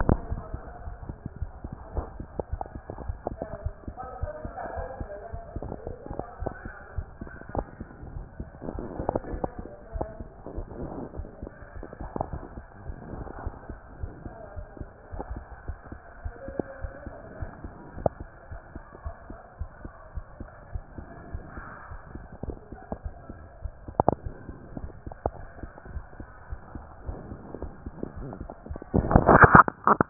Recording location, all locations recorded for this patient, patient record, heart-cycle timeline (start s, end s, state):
aortic valve (AV)
aortic valve (AV)+pulmonary valve (PV)+tricuspid valve (TV)+mitral valve (MV)
#Age: Child
#Sex: Male
#Height: 161.0 cm
#Weight: 61.3 kg
#Pregnancy status: False
#Murmur: Absent
#Murmur locations: nan
#Most audible location: nan
#Systolic murmur timing: nan
#Systolic murmur shape: nan
#Systolic murmur grading: nan
#Systolic murmur pitch: nan
#Systolic murmur quality: nan
#Diastolic murmur timing: nan
#Diastolic murmur shape: nan
#Diastolic murmur grading: nan
#Diastolic murmur pitch: nan
#Diastolic murmur quality: nan
#Outcome: Abnormal
#Campaign: 2014 screening campaign
0.00	25.81	unannotated
25.81	25.95	diastole
25.95	26.04	S1
26.04	26.18	systole
26.18	26.28	S2
26.28	26.50	diastole
26.50	26.60	S1
26.60	26.74	systole
26.74	26.84	S2
26.84	27.06	diastole
27.06	27.18	S1
27.18	27.30	systole
27.30	27.40	S2
27.40	27.62	diastole
27.62	27.72	S1
27.72	27.84	systole
27.84	27.92	S2
27.92	28.17	diastole
28.17	28.27	S1
28.27	28.40	systole
28.40	28.50	S2
28.50	28.72	diastole
28.72	30.10	unannotated